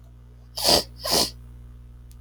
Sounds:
Sniff